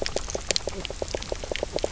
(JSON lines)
{"label": "biophony, knock croak", "recorder": "SoundTrap 300"}